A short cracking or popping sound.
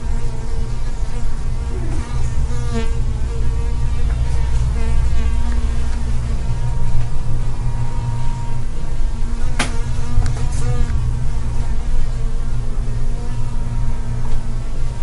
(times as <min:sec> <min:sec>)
0:09.5 0:09.9